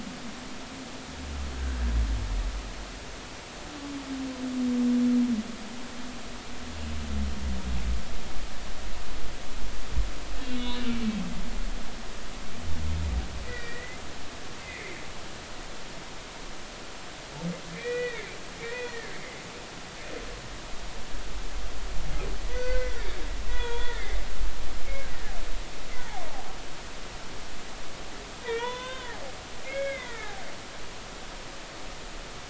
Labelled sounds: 10.4	10.8	humpback whale, 2.1 to 4.0 kHz
13.4	15.0	humpback whale, 1.8 to 2.4 kHz
17.7	18.3	humpback whale, 1.7 to 2.5 kHz
18.6	19.2	humpback whale, 1.5 to 2.0 kHz
22.6	24.1	humpback whale, 0.90 to 3.5 kHz
25.9	26.5	humpback whale, 0.80 to 2.1 kHz
28.4	30.3	humpback whale, 0.86 to 3.7 kHz

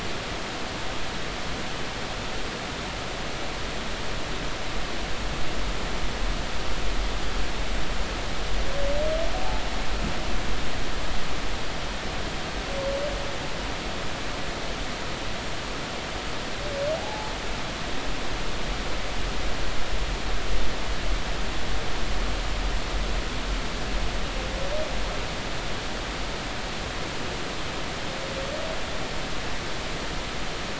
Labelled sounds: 17.0	17.3	humpback whale, 0.80 to 0.93 kHz

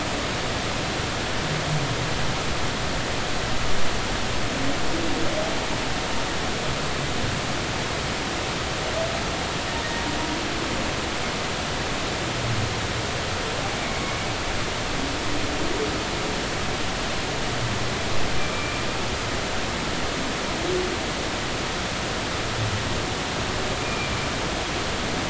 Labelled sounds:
13.8	14.2	humpback whale, 2.1 to 2.4 kHz
18.4	18.8	humpback whale, 2.2 to 2.4 kHz
23.8	24.1	humpback whale, 2.3 to 2.5 kHz

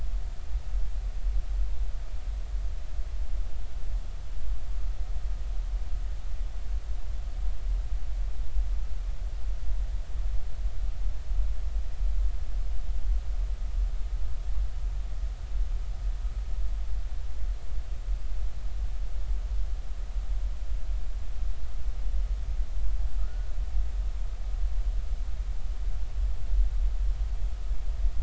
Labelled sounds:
23.2	23.5	humpback whale, 1.2 to 1.5 kHz

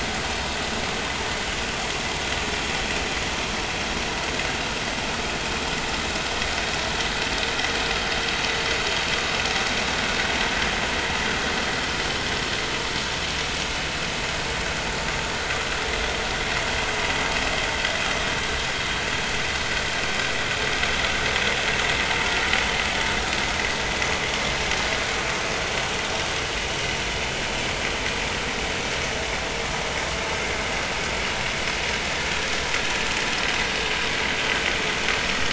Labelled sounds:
11.6	11.8	vessel noise, 4.1 to 4.3 kHz

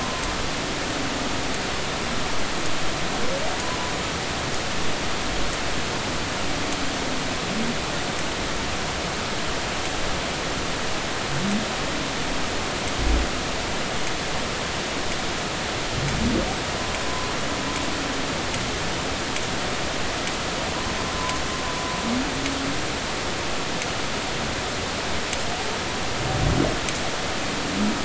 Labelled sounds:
17.0	17.3	humpback whale, 0.96 to 1.1 kHz

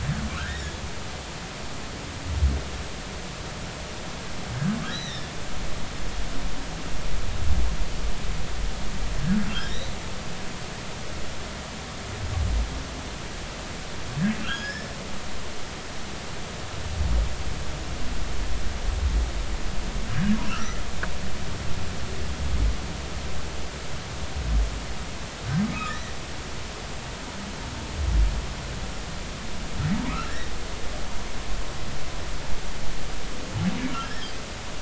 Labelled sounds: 0.3	0.6	humpback whale, 0.99 to 2.0 kHz
4.8	5.3	humpback whale, 1.5 to 4.1 kHz
9.6	10.0	humpback whale, 3.6 to 4.1 kHz
14.4	14.9	humpback whale, 1.3 to 3.4 kHz
20.5	20.8	humpback whale, 1.2 to 2.1 kHz
25.7	26.1	humpback whale, 1.2 to 2.0 kHz
34.0	34.3	humpback whale, 1.5 to 1.9 kHz

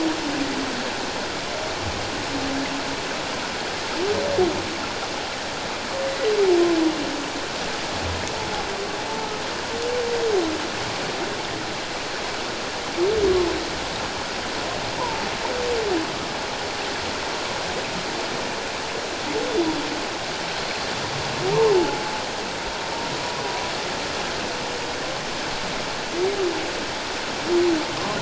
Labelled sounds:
15.0	15.3	humpback whale, 0.84 to 1.1 kHz
19.5	19.8	humpback whale, 3.4 to 3.5 kHz
21.7	22.1	humpback whale, 0.78 to 0.91 kHz

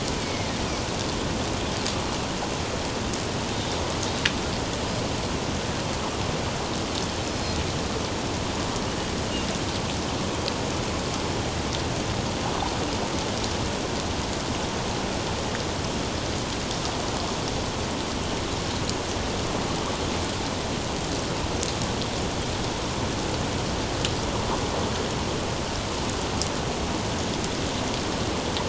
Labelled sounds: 0.2	0.5	Pacific white-sided dolphin, 2.0 to 2.5 kHz
7.2	7.6	Pacific white-sided dolphin, 5.0 to 5.2 kHz

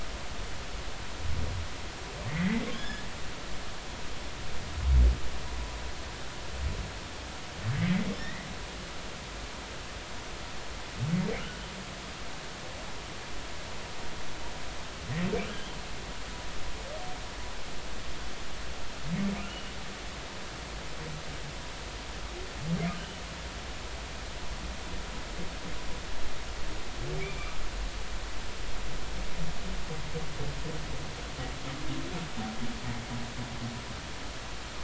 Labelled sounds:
2.3	3.0	humpback whale, 1.5 to 3.6 kHz
8.2	8.5	humpback whale, 1.7 to 2.1 kHz
19.5	19.7	humpback whale, 2.8 to 3.0 kHz
27.2	27.5	humpback whale, 2.2 to 2.5 kHz

